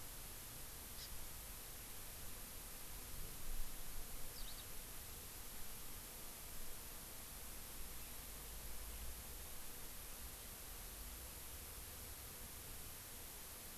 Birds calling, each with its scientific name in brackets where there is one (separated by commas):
Eurasian Skylark (Alauda arvensis), Hawaii Amakihi (Chlorodrepanis virens)